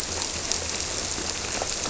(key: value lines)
label: biophony
recorder: SoundTrap 300